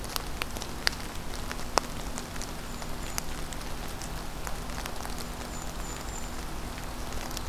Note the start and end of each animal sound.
2.5s-3.4s: Golden-crowned Kinglet (Regulus satrapa)
5.2s-6.5s: Golden-crowned Kinglet (Regulus satrapa)

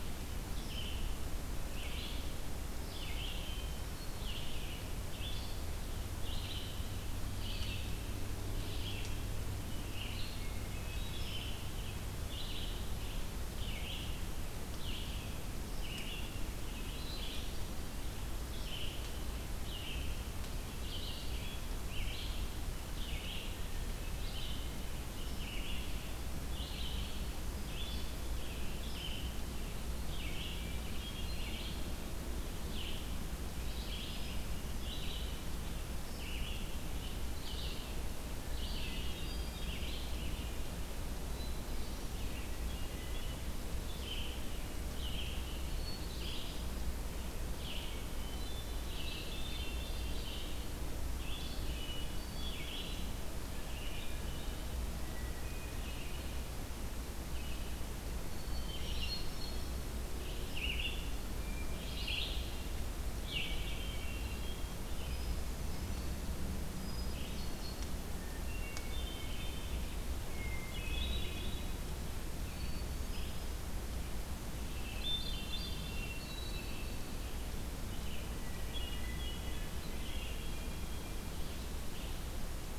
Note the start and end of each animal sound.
0.0s-40.5s: Red-eyed Vireo (Vireo olivaceus)
10.1s-12.0s: Hermit Thrush (Catharus guttatus)
30.4s-32.0s: Hermit Thrush (Catharus guttatus)
34.1s-35.2s: Hermit Thrush (Catharus guttatus)
38.8s-40.0s: Hermit Thrush (Catharus guttatus)
41.3s-42.2s: Hermit Thrush (Catharus guttatus)
41.4s-82.8s: Red-eyed Vireo (Vireo olivaceus)
45.4s-46.9s: Hermit Thrush (Catharus guttatus)
48.0s-50.5s: Hermit Thrush (Catharus guttatus)
51.5s-52.9s: Hermit Thrush (Catharus guttatus)
58.1s-60.0s: Hermit Thrush (Catharus guttatus)
63.1s-66.4s: Hermit Thrush (Catharus guttatus)
66.9s-67.8s: Hermit Thrush (Catharus guttatus)
68.2s-69.9s: Hermit Thrush (Catharus guttatus)
70.2s-72.0s: Hermit Thrush (Catharus guttatus)
72.3s-73.7s: Hermit Thrush (Catharus guttatus)
74.6s-77.6s: Hermit Thrush (Catharus guttatus)
78.4s-81.1s: Hermit Thrush (Catharus guttatus)

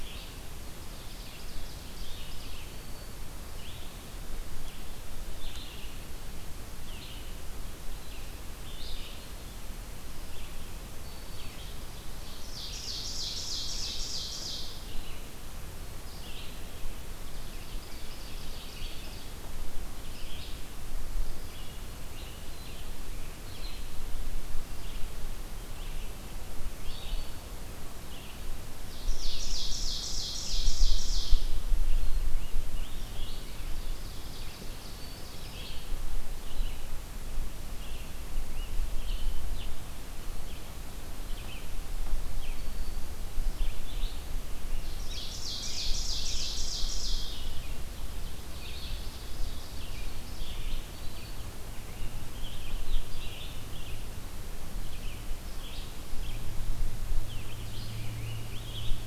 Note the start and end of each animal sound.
0.0s-16.6s: Red-eyed Vireo (Vireo olivaceus)
0.8s-2.1s: Ovenbird (Seiurus aurocapilla)
2.5s-3.5s: Black-throated Green Warbler (Setophaga virens)
10.8s-11.9s: Black-throated Green Warbler (Setophaga virens)
12.4s-14.7s: Ovenbird (Seiurus aurocapilla)
17.2s-19.1s: Ovenbird (Seiurus aurocapilla)
18.4s-59.1s: Red-eyed Vireo (Vireo olivaceus)
26.7s-27.3s: Black-throated Green Warbler (Setophaga virens)
28.8s-31.5s: Ovenbird (Seiurus aurocapilla)
31.8s-33.7s: Scarlet Tanager (Piranga olivacea)
33.4s-35.2s: Ovenbird (Seiurus aurocapilla)
34.7s-35.5s: Black-throated Green Warbler (Setophaga virens)
38.2s-39.8s: Scarlet Tanager (Piranga olivacea)
42.4s-43.2s: Black-throated Green Warbler (Setophaga virens)
44.9s-47.5s: Ovenbird (Seiurus aurocapilla)
45.3s-46.7s: Scarlet Tanager (Piranga olivacea)
48.5s-50.2s: Ovenbird (Seiurus aurocapilla)
50.6s-51.7s: Black-throated Green Warbler (Setophaga virens)
52.3s-53.6s: Scarlet Tanager (Piranga olivacea)
57.3s-59.1s: Scarlet Tanager (Piranga olivacea)

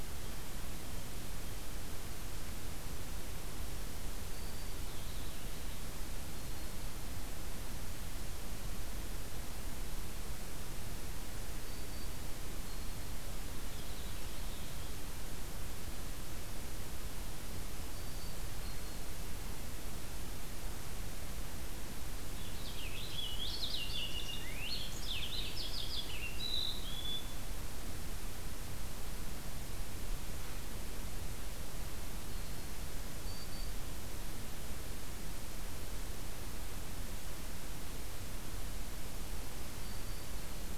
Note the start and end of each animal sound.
4.2s-4.8s: Black-throated Green Warbler (Setophaga virens)
4.5s-5.9s: Purple Finch (Haemorhous purpureus)
6.1s-6.9s: Black-throated Green Warbler (Setophaga virens)
11.5s-12.2s: Black-throated Green Warbler (Setophaga virens)
13.5s-15.0s: Purple Finch (Haemorhous purpureus)
17.8s-18.5s: Black-throated Green Warbler (Setophaga virens)
22.3s-27.5s: Purple Finch (Haemorhous purpureus)
33.1s-33.9s: Black-throated Green Warbler (Setophaga virens)

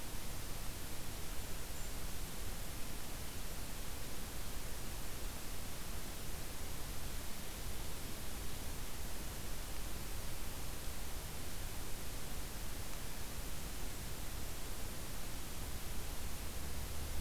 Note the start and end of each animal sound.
0.9s-1.9s: Blackburnian Warbler (Setophaga fusca)

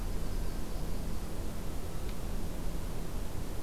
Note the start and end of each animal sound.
0.0s-1.2s: Yellow-rumped Warbler (Setophaga coronata)

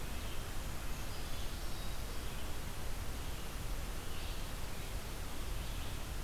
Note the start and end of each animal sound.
0.0s-6.2s: Red-eyed Vireo (Vireo olivaceus)
0.5s-1.7s: Brown Creeper (Certhia americana)
1.6s-2.2s: Black-capped Chickadee (Poecile atricapillus)

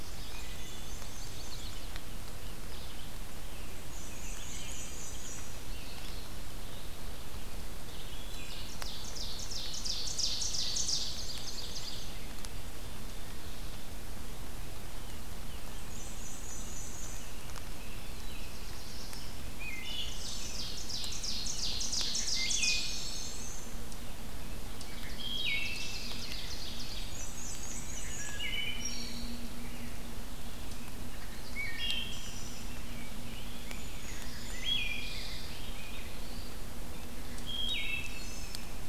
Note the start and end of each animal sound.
0.0s-1.6s: Black-and-white Warbler (Mniotilta varia)
0.1s-1.2s: Wood Thrush (Hylocichla mustelina)
0.9s-2.0s: Chestnut-sided Warbler (Setophaga pensylvanica)
3.7s-5.9s: Black-and-white Warbler (Mniotilta varia)
4.2s-5.0s: Wood Thrush (Hylocichla mustelina)
7.9s-8.8s: Wood Thrush (Hylocichla mustelina)
8.6s-12.1s: Ovenbird (Seiurus aurocapilla)
10.6s-12.2s: Black-and-white Warbler (Mniotilta varia)
15.6s-17.3s: Black-and-white Warbler (Mniotilta varia)
17.8s-19.4s: Black-throated Blue Warbler (Setophaga caerulescens)
19.2s-20.6s: Wood Thrush (Hylocichla mustelina)
20.0s-23.1s: Ovenbird (Seiurus aurocapilla)
22.3s-23.5s: Wood Thrush (Hylocichla mustelina)
22.3s-24.2s: Black-and-white Warbler (Mniotilta varia)
24.6s-26.2s: Wood Thrush (Hylocichla mustelina)
25.0s-27.3s: Ovenbird (Seiurus aurocapilla)
26.9s-28.5s: Black-and-white Warbler (Mniotilta varia)
28.1s-29.5s: Wood Thrush (Hylocichla mustelina)
31.5s-32.8s: Wood Thrush (Hylocichla mustelina)
32.5s-36.4s: Rose-breasted Grosbeak (Pheucticus ludovicianus)
33.6s-35.1s: Brown Creeper (Certhia americana)
34.4s-35.7s: Wood Thrush (Hylocichla mustelina)
37.4s-38.7s: Wood Thrush (Hylocichla mustelina)

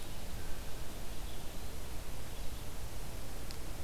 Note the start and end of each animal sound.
0.0s-3.8s: Red-eyed Vireo (Vireo olivaceus)

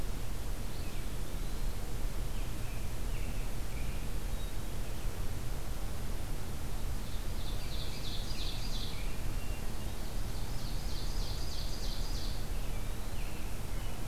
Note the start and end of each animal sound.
0.6s-1.8s: Eastern Wood-Pewee (Contopus virens)
2.1s-4.2s: American Robin (Turdus migratorius)
6.6s-9.1s: Ovenbird (Seiurus aurocapilla)
7.4s-9.6s: American Robin (Turdus migratorius)
10.0s-12.4s: Ovenbird (Seiurus aurocapilla)
12.1s-13.3s: Eastern Wood-Pewee (Contopus virens)
12.3s-14.1s: American Robin (Turdus migratorius)

